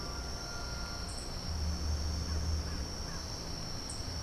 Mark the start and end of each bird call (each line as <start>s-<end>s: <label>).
0.0s-3.7s: unidentified bird